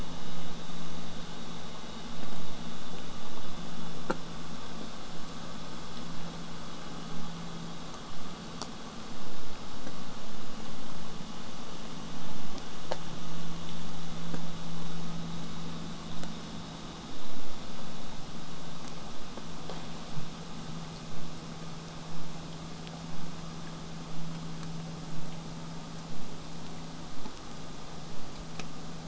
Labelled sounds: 24.1	29.0	vessel noise, 0 to 8.0 kHz

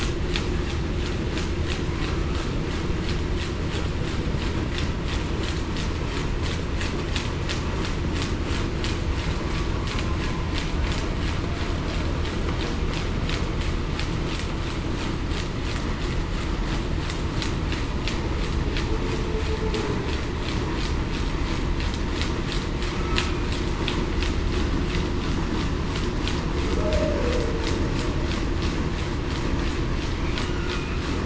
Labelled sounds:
26.8	27.3	humpback whale, 0.54 to 0.66 kHz

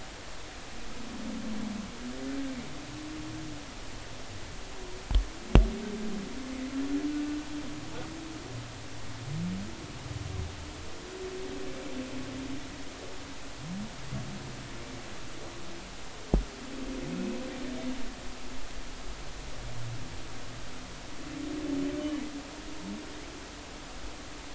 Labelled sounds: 17.1	17.4	humpback whale, 2.5 to 2.7 kHz

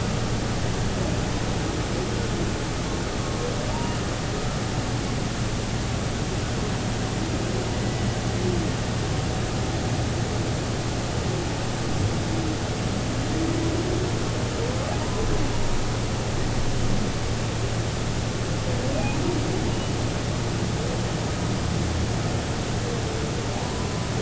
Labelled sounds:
3.7	4.0	humpback whale, 0.86 to 2.9 kHz
15.0	15.3	humpback whale, 0.90 to 1.1 kHz
23.6	23.9	humpback whale, 0.90 to 1.1 kHz

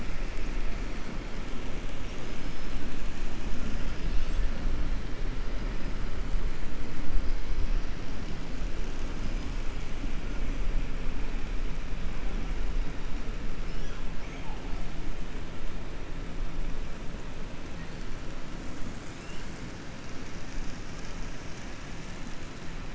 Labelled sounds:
2.0	2.7	killer whale, 5.1 to 6.4 kHz

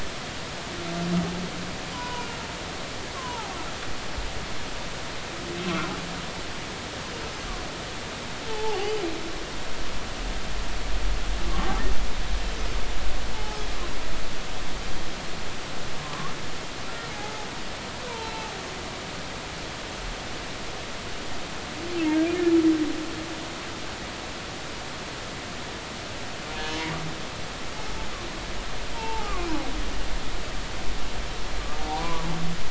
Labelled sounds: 1.9	2.4	humpback whale, 0.93 to 3.0 kHz
3.2	3.5	humpback whale, 0.80 to 1.2 kHz
8.5	9.0	humpback whale, 0.80 to 3.1 kHz
13.3	13.6	humpback whale, 0.80 to 0.93 kHz
17.1	18.5	humpback whale, 0.80 to 4.2 kHz
28.9	29.5	humpback whale, 0.80 to 1.3 kHz
31.8	32.2	humpback whale, 0.80 to 1.2 kHz

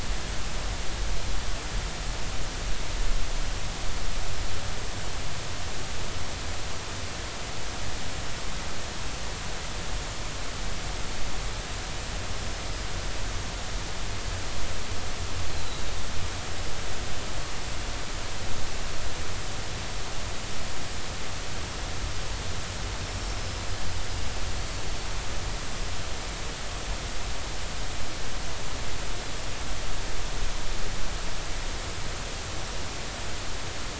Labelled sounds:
12.3	12.6	Pacific white-sided dolphin, 5.2 to 5.3 kHz
23.4	23.6	Pacific white-sided dolphin, 5.2 to 5.3 kHz
24.6	24.8	Pacific white-sided dolphin, 4.4 to 4.5 kHz

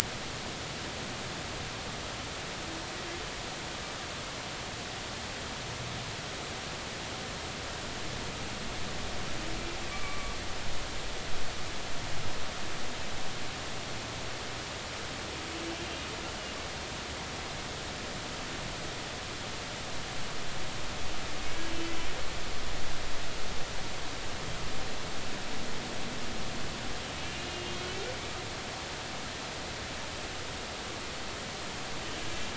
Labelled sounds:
9.9	10.4	humpback whale, 1.1 to 2.4 kHz
27.2	27.7	humpback whale, 2.7 to 2.9 kHz

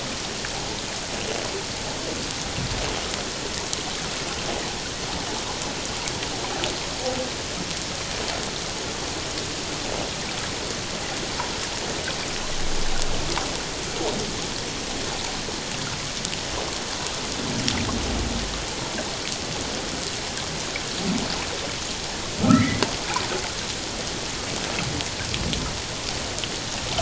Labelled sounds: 22.4	22.8	humpback whale, 1.2 to 2.2 kHz

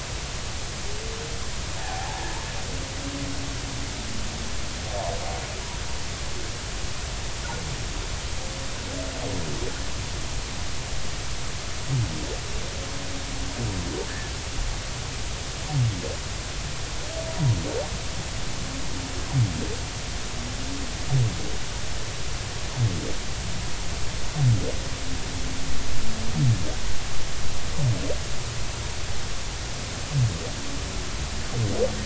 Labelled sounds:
1.8	2.2	humpback whale, 0.80 to 1.1 kHz

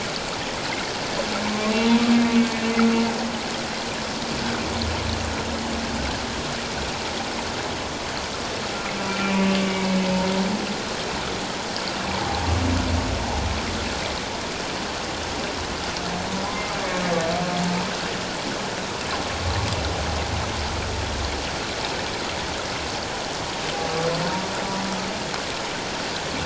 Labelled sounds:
1.4	1.7	humpback whale, 0.88 to 1.1 kHz
2.3	2.6	humpback whale, 2.4 to 2.6 kHz
9.1	10.1	humpback whale, 2.2 to 2.4 kHz
12.1	12.4	humpback whale, 0.78 to 1.0 kHz

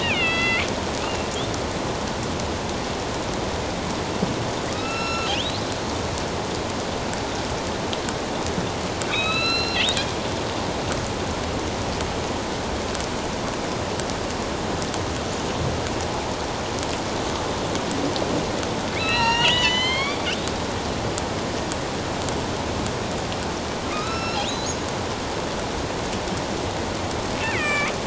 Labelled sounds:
0.0	1.3	killer whale, northern resident, A clan, AB subclan, 1.3 to 4.8 kHz
4.7	5.6	killer whale, northern resident, A clan, AB subclan, 1.2 to 6.8 kHz
9.1	9.8	killer whale, northern resident, A clan, AB subclan, 1.2 to 5.5 kHz
18.9	20.3	killer whale, northern resident, A clan, AB subclan, 0.88 to 7.6 kHz
23.9	24.7	killer whale, northern resident, A clan, AB subclan, 1.1 to 5.5 kHz
27.4	27.9	killer whale, northern resident, A clan, AB subclan, 1.1 to 3.3 kHz

